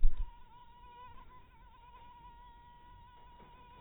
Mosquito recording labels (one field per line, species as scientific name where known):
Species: mosquito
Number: one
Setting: cup